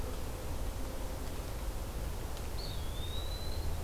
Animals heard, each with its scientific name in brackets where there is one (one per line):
Eastern Wood-Pewee (Contopus virens)